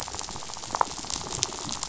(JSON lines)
{"label": "biophony, rattle", "recorder": "SoundTrap 500"}